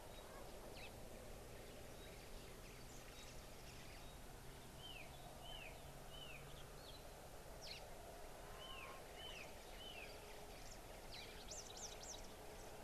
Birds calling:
Spotted Morning-Thrush (Cichladusa guttata), Red-fronted Prinia (Prinia rufifrons), Parrot-billed Sparrow (Passer gongonensis)

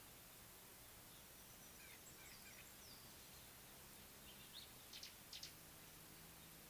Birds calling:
Gray-backed Camaroptera (Camaroptera brevicaudata)

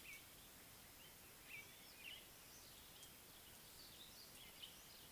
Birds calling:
Violet-backed Starling (Cinnyricinclus leucogaster)

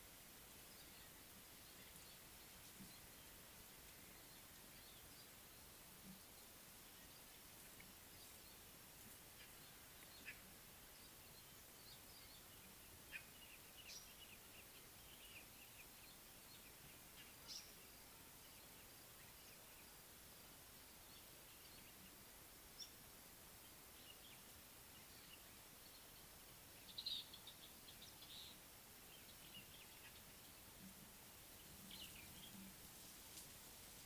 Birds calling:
African Paradise-Flycatcher (Terpsiphone viridis), Little Bee-eater (Merops pusillus)

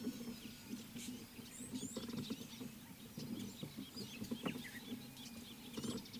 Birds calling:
Red-cheeked Cordonbleu (Uraeginthus bengalus)

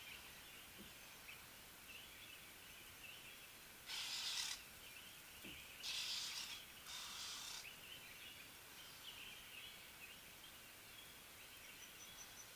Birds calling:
Ring-necked Dove (Streptopelia capicola)

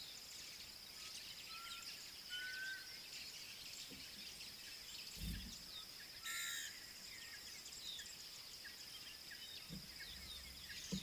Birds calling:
Black Cuckoo (Cuculus clamosus), African Bare-eyed Thrush (Turdus tephronotus)

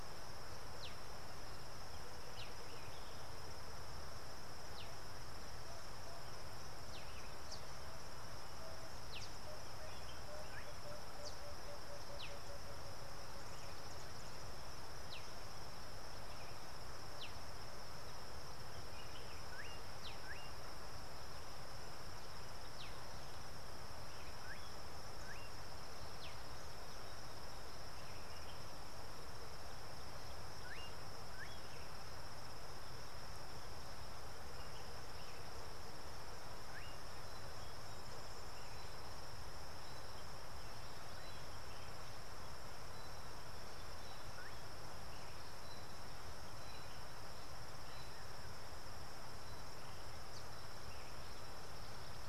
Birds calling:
Slate-colored Boubou (Laniarius funebris), Emerald-spotted Wood-Dove (Turtur chalcospilos)

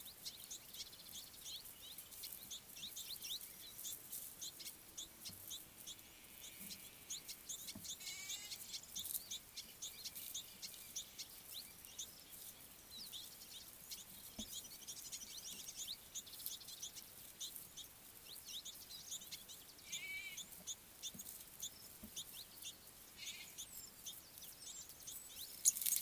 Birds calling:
Mariqua Sunbird (Cinnyris mariquensis), Red-billed Firefinch (Lagonosticta senegala)

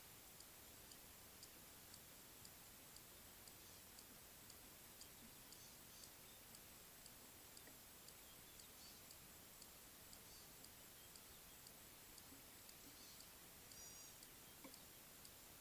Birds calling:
Gray-backed Camaroptera (Camaroptera brevicaudata)

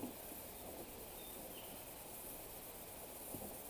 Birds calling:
Waller's Starling (Onychognathus walleri)

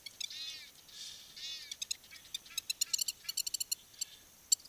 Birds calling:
Egyptian Goose (Alopochen aegyptiaca), Long-toed Lapwing (Vanellus crassirostris)

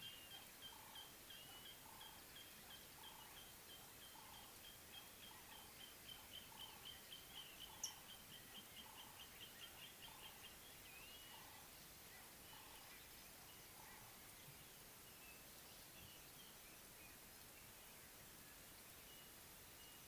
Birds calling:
Nubian Woodpecker (Campethera nubica)

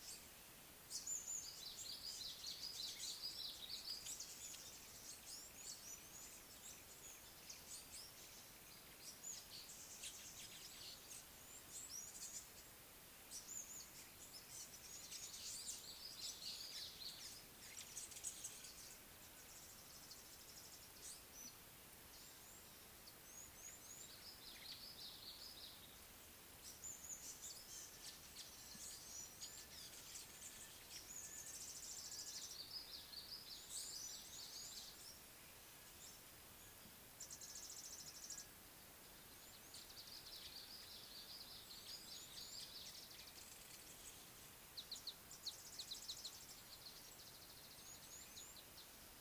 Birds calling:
African Gray Flycatcher (Bradornis microrhynchus), Red-faced Crombec (Sylvietta whytii), Scarlet-chested Sunbird (Chalcomitra senegalensis), Purple Grenadier (Granatina ianthinogaster), Red-cheeked Cordonbleu (Uraeginthus bengalus)

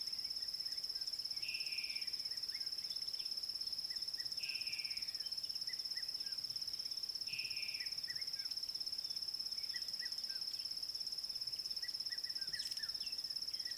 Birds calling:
Slate-colored Boubou (Laniarius funebris), Red-chested Cuckoo (Cuculus solitarius)

